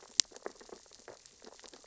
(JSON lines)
{"label": "biophony, sea urchins (Echinidae)", "recorder": "SoundTrap 600 or HydroMoth"}